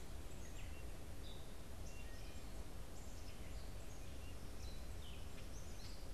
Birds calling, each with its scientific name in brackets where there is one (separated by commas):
Gray Catbird (Dumetella carolinensis)